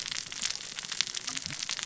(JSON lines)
{"label": "biophony, cascading saw", "recorder": "SoundTrap 600 or HydroMoth"}